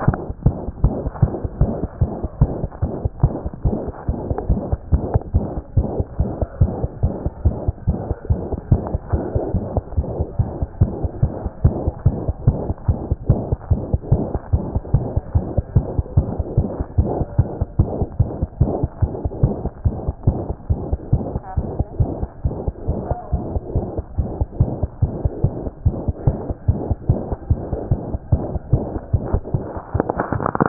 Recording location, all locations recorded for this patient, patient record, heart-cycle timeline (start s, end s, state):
mitral valve (MV)
aortic valve (AV)+mitral valve (MV)
#Age: Infant
#Sex: Female
#Height: 56.0 cm
#Weight: 5.2 kg
#Pregnancy status: False
#Murmur: Present
#Murmur locations: aortic valve (AV)+mitral valve (MV)
#Most audible location: mitral valve (MV)
#Systolic murmur timing: Holosystolic
#Systolic murmur shape: Plateau
#Systolic murmur grading: I/VI
#Systolic murmur pitch: High
#Systolic murmur quality: Harsh
#Diastolic murmur timing: nan
#Diastolic murmur shape: nan
#Diastolic murmur grading: nan
#Diastolic murmur pitch: nan
#Diastolic murmur quality: nan
#Outcome: Abnormal
#Campaign: 2014 screening campaign
0.00	0.39	unannotated
0.39	0.44	diastole
0.44	0.56	S1
0.56	0.64	systole
0.64	0.70	S2
0.70	0.84	diastole
0.84	0.94	S1
0.94	1.06	systole
1.06	1.10	S2
1.10	1.22	diastole
1.22	1.32	S1
1.32	1.40	systole
1.40	1.48	S2
1.48	1.60	diastole
1.60	1.72	S1
1.72	1.80	systole
1.80	1.88	S2
1.88	2.02	diastole
2.02	2.12	S1
2.12	2.20	systole
2.20	2.28	S2
2.28	2.40	diastole
2.40	2.50	S1
2.50	2.60	systole
2.60	2.68	S2
2.68	2.82	diastole
2.82	2.92	S1
2.92	3.02	systole
3.02	3.10	S2
3.10	3.22	diastole
3.22	3.34	S1
3.34	3.42	systole
3.42	3.50	S2
3.50	3.66	diastole
3.66	3.78	S1
3.78	3.86	systole
3.86	3.94	S2
3.94	4.08	diastole
4.08	4.18	S1
4.18	4.26	systole
4.26	4.36	S2
4.36	4.48	diastole
4.48	4.60	S1
4.60	4.70	systole
4.70	4.78	S2
4.78	4.92	diastole
4.92	5.04	S1
5.04	5.12	systole
5.12	5.20	S2
5.20	5.34	diastole
5.34	5.46	S1
5.46	5.54	systole
5.54	5.62	S2
5.62	5.76	diastole
5.76	5.88	S1
5.88	5.98	systole
5.98	6.04	S2
6.04	6.20	diastole
6.20	6.30	S1
6.30	6.40	systole
6.40	6.46	S2
6.46	6.60	diastole
6.60	6.72	S1
6.72	6.80	systole
6.80	6.88	S2
6.88	7.02	diastole
7.02	7.14	S1
7.14	7.24	systole
7.24	7.30	S2
7.30	7.44	diastole
7.44	7.56	S1
7.56	7.66	systole
7.66	7.74	S2
7.74	7.88	diastole
7.88	7.98	S1
7.98	8.08	systole
8.08	8.16	S2
8.16	8.30	diastole
8.30	8.40	S1
8.40	8.50	systole
8.50	8.58	S2
8.58	8.72	diastole
8.72	8.82	S1
8.82	8.92	systole
8.92	9.00	S2
9.00	9.14	diastole
9.14	9.24	S1
9.24	9.34	systole
9.34	9.42	S2
9.42	9.54	diastole
9.54	9.64	S1
9.64	9.74	systole
9.74	9.82	S2
9.82	9.96	diastole
9.96	10.06	S1
10.06	10.18	systole
10.18	10.26	S2
10.26	10.40	diastole
10.40	10.50	S1
10.50	10.60	systole
10.60	10.68	S2
10.68	10.80	diastole
10.80	10.92	S1
10.92	11.02	systole
11.02	11.10	S2
11.10	11.22	diastole
11.22	11.32	S1
11.32	11.42	systole
11.42	11.50	S2
11.50	11.64	diastole
11.64	11.76	S1
11.76	11.84	systole
11.84	11.92	S2
11.92	12.06	diastole
12.06	12.18	S1
12.18	12.26	systole
12.26	12.34	S2
12.34	12.46	diastole
12.46	12.58	S1
12.58	12.66	systole
12.66	12.74	S2
12.74	12.88	diastole
12.88	12.98	S1
12.98	13.08	systole
13.08	13.16	S2
13.16	13.28	diastole
13.28	13.42	S1
13.42	13.50	systole
13.50	13.58	S2
13.58	13.70	diastole
13.70	13.82	S1
13.82	13.92	systole
13.92	13.98	S2
13.98	14.12	diastole
14.12	14.24	S1
14.24	14.32	systole
14.32	14.40	S2
14.40	14.52	diastole
14.52	14.64	S1
14.64	14.74	systole
14.74	14.80	S2
14.80	14.94	diastole
14.94	15.06	S1
15.06	15.14	systole
15.14	15.22	S2
15.22	15.34	diastole
15.34	15.46	S1
15.46	15.56	systole
15.56	15.64	S2
15.64	15.76	diastole
15.76	15.86	S1
15.86	15.96	systole
15.96	16.04	S2
16.04	16.16	diastole
16.16	16.28	S1
16.28	16.40	systole
16.40	16.44	S2
16.44	16.58	diastole
16.58	16.68	S1
16.68	16.78	systole
16.78	16.84	S2
16.84	16.98	diastole
16.98	17.10	S1
17.10	17.18	systole
17.18	17.26	S2
17.26	17.38	diastole
17.38	17.48	S1
17.48	17.58	systole
17.58	17.66	S2
17.66	17.78	diastole
17.78	17.90	S1
17.90	17.98	systole
17.98	18.08	S2
18.08	18.20	diastole
18.20	18.30	S1
18.30	18.40	systole
18.40	18.48	S2
18.48	18.60	diastole
18.60	18.72	S1
18.72	18.82	systole
18.82	18.90	S2
18.90	19.02	diastole
19.02	19.12	S1
19.12	19.22	systole
19.22	19.30	S2
19.30	19.42	diastole
19.42	19.54	S1
19.54	19.62	systole
19.62	19.70	S2
19.70	19.86	diastole
19.86	19.96	S1
19.96	20.06	systole
20.06	20.14	S2
20.14	20.28	diastole
20.28	20.38	S1
20.38	20.48	systole
20.48	20.54	S2
20.54	20.70	diastole
20.70	20.80	S1
20.80	20.90	systole
20.90	20.98	S2
20.98	21.12	diastole
21.12	21.24	S1
21.24	21.32	systole
21.32	21.42	S2
21.42	21.58	diastole
21.58	21.68	S1
21.68	21.78	systole
21.78	21.84	S2
21.84	22.00	diastole
22.00	22.10	S1
22.10	22.20	systole
22.20	22.28	S2
22.28	22.44	diastole
22.44	22.56	S1
22.56	22.66	systole
22.66	22.74	S2
22.74	22.88	diastole
22.88	23.00	S1
23.00	23.08	systole
23.08	23.16	S2
23.16	23.32	diastole
23.32	23.44	S1
23.44	23.52	systole
23.52	23.60	S2
23.60	23.74	diastole
23.74	23.86	S1
23.86	23.96	systole
23.96	24.04	S2
24.04	24.18	diastole
24.18	24.30	S1
24.30	24.40	systole
24.40	24.46	S2
24.46	24.60	diastole
24.60	24.70	S1
24.70	24.80	systole
24.80	24.88	S2
24.88	25.02	diastole
25.02	25.12	S1
25.12	25.22	systole
25.22	25.30	S2
25.30	25.44	diastole
25.44	25.52	S1
25.52	25.62	systole
25.62	25.70	S2
25.70	25.84	diastole
25.84	25.96	S1
25.96	26.06	systole
26.06	26.14	S2
26.14	26.26	diastole
26.26	26.38	S1
26.38	26.48	systole
26.48	26.54	S2
26.54	26.68	diastole
26.68	26.80	S1
26.80	26.88	systole
26.88	26.96	S2
26.96	27.08	diastole
27.08	27.20	S1
27.20	27.28	systole
27.28	27.36	S2
27.36	27.50	diastole
27.50	27.60	S1
27.60	27.70	systole
27.70	27.78	S2
27.78	27.90	diastole
27.90	28.00	S1
28.00	28.10	systole
28.10	28.18	S2
28.18	28.32	diastole
28.32	28.44	S1
28.44	28.54	systole
28.54	28.60	S2
28.60	28.72	diastole
28.72	28.82	S1
28.82	28.92	systole
28.92	29.00	S2
29.00	29.14	diastole
29.14	29.22	S1
29.22	29.32	systole
29.32	29.42	S2
29.42	29.54	diastole
29.54	29.64	S1
29.64	29.78	systole
29.78	29.80	S2
29.80	29.84	diastole
29.84	30.69	unannotated